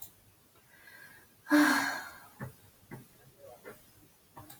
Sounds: Sigh